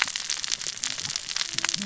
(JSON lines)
{"label": "biophony, cascading saw", "recorder": "SoundTrap 600 or HydroMoth"}